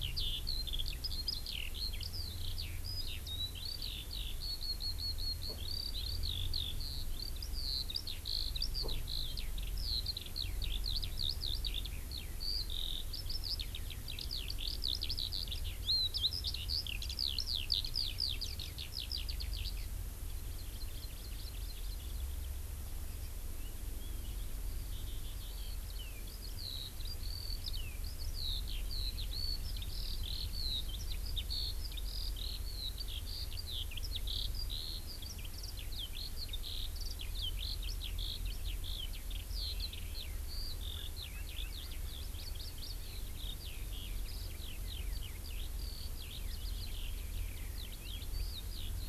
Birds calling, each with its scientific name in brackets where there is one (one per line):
Eurasian Skylark (Alauda arvensis)
Hawaii Amakihi (Chlorodrepanis virens)